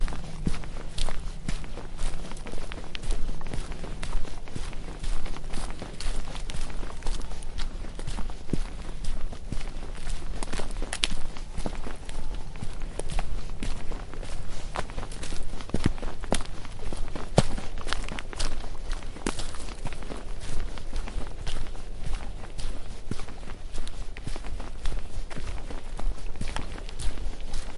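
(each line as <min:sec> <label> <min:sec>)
0:00.0 Continuous footsteps on mud and dirt in a forest with quiet wind at night. 0:27.8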